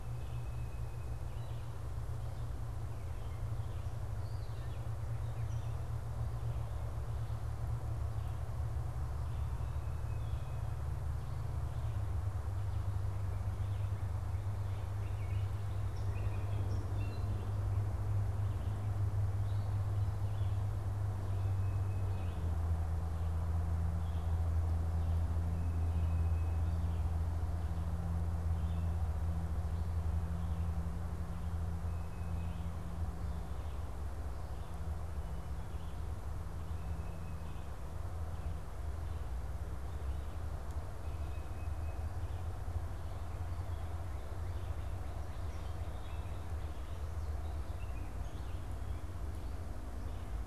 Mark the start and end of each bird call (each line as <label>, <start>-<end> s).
Tufted Titmouse (Baeolophus bicolor), 0.0-1.4 s
Red-eyed Vireo (Vireo olivaceus), 0.0-42.6 s
unidentified bird, 4.1-6.2 s
Tufted Titmouse (Baeolophus bicolor), 9.4-10.8 s
unidentified bird, 14.9-17.6 s
Tufted Titmouse (Baeolophus bicolor), 21.2-22.5 s
Tufted Titmouse (Baeolophus bicolor), 25.4-26.8 s
Tufted Titmouse (Baeolophus bicolor), 31.8-32.7 s
Tufted Titmouse (Baeolophus bicolor), 36.7-37.8 s
Tufted Titmouse (Baeolophus bicolor), 40.9-42.2 s
Red-eyed Vireo (Vireo olivaceus), 42.9-50.5 s
Northern Cardinal (Cardinalis cardinalis), 44.0-46.7 s
unidentified bird, 45.2-48.9 s